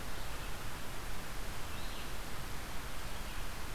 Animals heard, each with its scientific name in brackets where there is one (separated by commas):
Red-eyed Vireo (Vireo olivaceus)